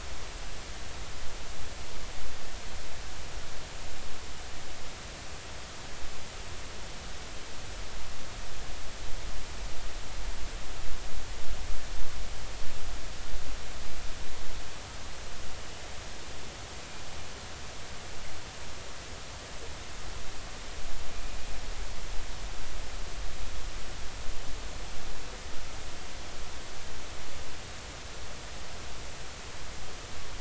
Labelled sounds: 21.1	21.4	killer whale, northern resident, G clan, 2.4 to 2.5 kHz

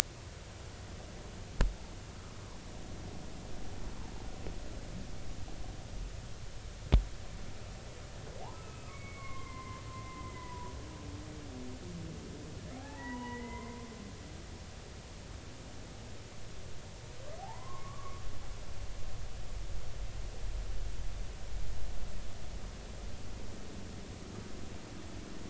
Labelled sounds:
8.5	10.7	humpback whale, 0.93 to 2.7 kHz
12.7	13.8	humpback whale, 0.80 to 3.1 kHz
17.4	18.2	humpback whale, 0.80 to 1.2 kHz

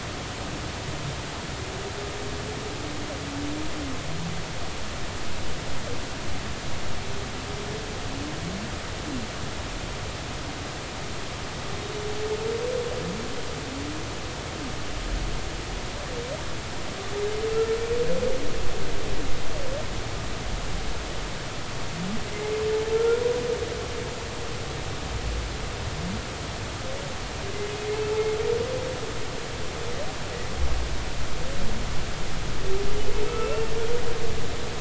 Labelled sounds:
22.9	23.2	humpback whale, 1.3 to 1.5 kHz

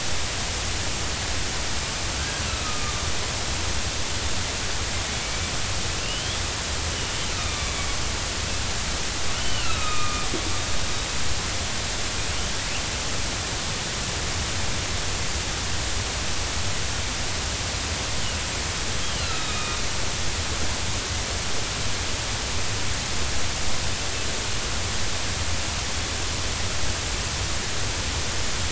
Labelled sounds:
2.6	3.0	killer whale, northern resident, 1.1 to 1.3 kHz
6.0	6.4	killer whale, northern resident, 2.6 to 3.5 kHz
7.3	8.0	killer whale, northern resident, 1.1 to 3.8 kHz
9.4	10.3	killer whale, northern resident, 1.2 to 4.0 kHz
19.1	19.8	killer whale, northern resident, 1.2 to 4.2 kHz

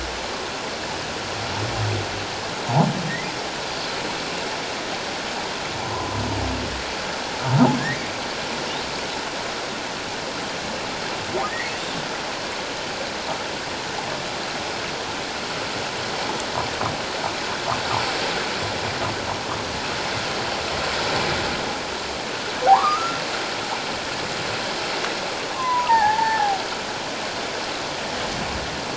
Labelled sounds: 5.8	6.2	humpback whale, 0.94 to 1.1 kHz
22.7	23.2	humpback whale, 0.78 to 1.4 kHz
25.5	26.6	humpback whale, 0.78 to 1.9 kHz

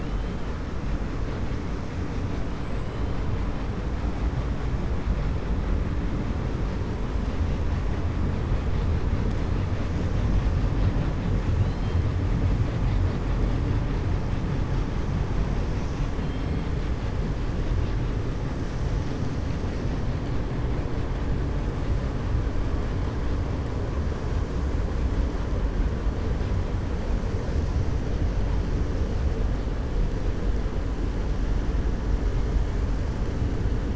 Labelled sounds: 11.5	12.0	killer whale, 2.7 to 4.3 kHz

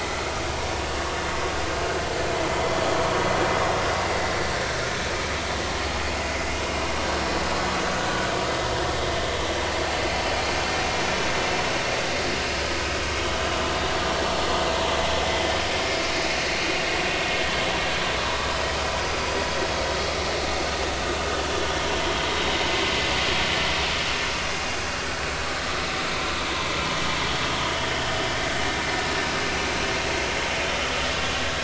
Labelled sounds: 15.7	16.0	vessel noise, 2.1 to 2.4 kHz
19.1	19.4	vessel noise, 4.7 to 4.9 kHz

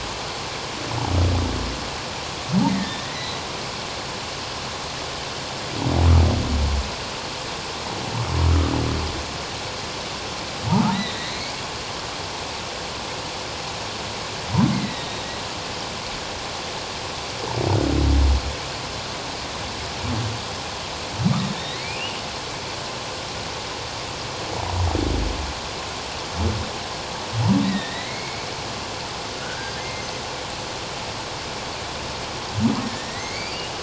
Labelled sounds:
2.7	3.4	humpback whale, 1.7 to 4.1 kHz
10.9	11.6	humpback whale, 1.7 to 4.1 kHz
14.7	15.3	humpback whale, 1.8 to 4.0 kHz
21.5	22.2	humpback whale, 1.7 to 4.3 kHz
27.6	28.5	humpback whale, 1.8 to 4.0 kHz
29.4	30.0	humpback whale, 1.3 to 2.2 kHz
32.8	33.6	humpback whale, 1.7 to 4.9 kHz

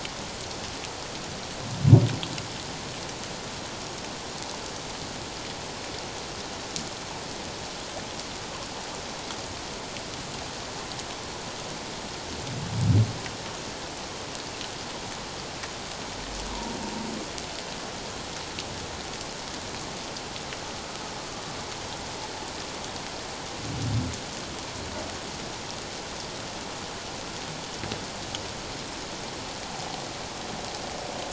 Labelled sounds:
16.5	16.8	humpback whale, 0.88 to 1.1 kHz

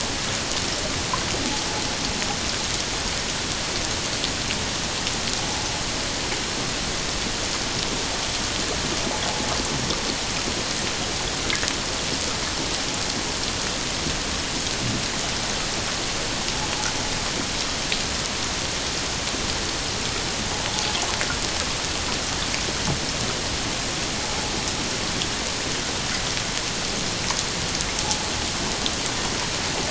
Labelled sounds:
28.0	28.3	invertebrate grinding on or near the hydrophone, 0.78 to 0.91 kHz

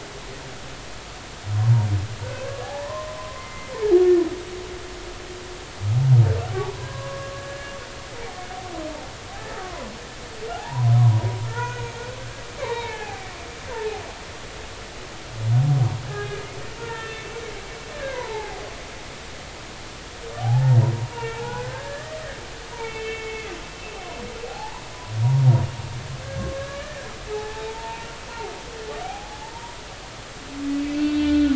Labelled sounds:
2.6	3.7	humpback whale, 0.80 to 2.2 kHz
6.5	7.8	humpback whale, 0.80 to 1.8 kHz
9.4	9.9	humpback whale, 0.96 to 2.0 kHz
10.5	12.0	humpback whale, 0.80 to 2.5 kHz
12.6	14.0	humpback whale, 0.80 to 2.7 kHz
16.1	16.5	humpback whale, 0.80 to 1.8 kHz
16.8	18.6	humpback whale, 0.80 to 3.6 kHz
20.4	22.2	humpback whale, 0.80 to 2.8 kHz
22.8	24.8	humpback whale, 0.80 to 3.7 kHz
26.6	28.1	humpback whale, 0.80 to 1.9 kHz
29.0	29.5	humpback whale, 0.80 to 0.96 kHz
30.8	31.5	humpback whale, 1.4 to 3.6 kHz

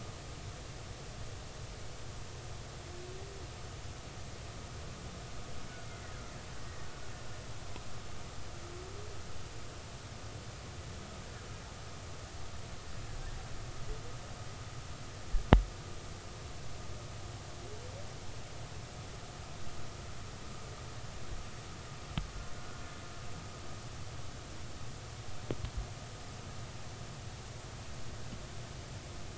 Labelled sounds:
6.6	6.9	killer whale, Bigg's (transient), 1.8 to 1.9 kHz
22.6	22.8	killer whale, Bigg's (transient), 1.3 to 1.5 kHz

